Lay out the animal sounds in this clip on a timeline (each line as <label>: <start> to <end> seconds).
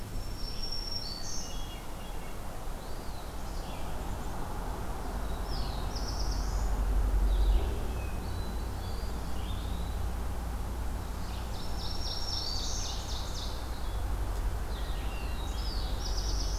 Black-throated Green Warbler (Setophaga virens): 0.0 to 1.6 seconds
Red-eyed Vireo (Vireo olivaceus): 0.0 to 16.6 seconds
Hermit Thrush (Catharus guttatus): 1.2 to 2.5 seconds
Eastern Wood-Pewee (Contopus virens): 2.3 to 3.5 seconds
Black-throated Blue Warbler (Setophaga caerulescens): 4.9 to 6.8 seconds
Hermit Thrush (Catharus guttatus): 7.6 to 9.4 seconds
Eastern Wood-Pewee (Contopus virens): 8.8 to 9.9 seconds
Ovenbird (Seiurus aurocapilla): 11.4 to 13.5 seconds
Black-throated Green Warbler (Setophaga virens): 11.6 to 13.0 seconds
Black-throated Blue Warbler (Setophaga caerulescens): 15.1 to 16.6 seconds
Black-capped Chickadee (Poecile atricapillus): 15.3 to 16.6 seconds